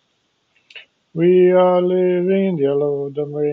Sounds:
Sigh